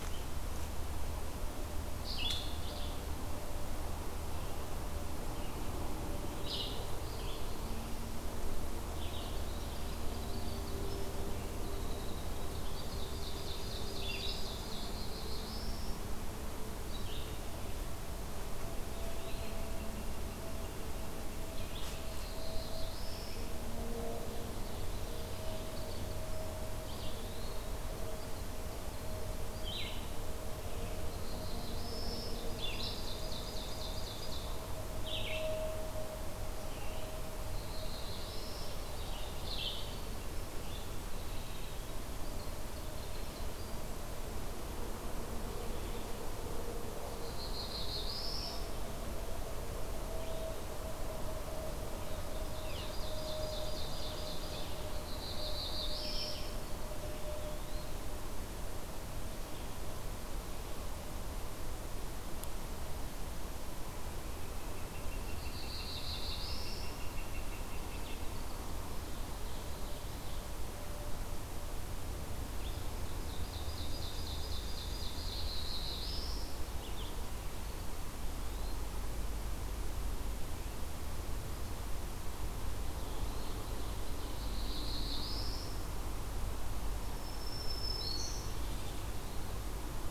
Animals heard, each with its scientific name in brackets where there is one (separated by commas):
Red-eyed Vireo (Vireo olivaceus), Yellow-rumped Warbler (Setophaga coronata), Ovenbird (Seiurus aurocapilla), Winter Wren (Troglodytes hiemalis), Black-throated Blue Warbler (Setophaga caerulescens), Eastern Wood-Pewee (Contopus virens), Northern Flicker (Colaptes auratus)